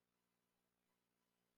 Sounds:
Sniff